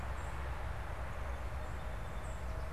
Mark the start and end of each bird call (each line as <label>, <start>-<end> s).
unidentified bird, 0.0-2.5 s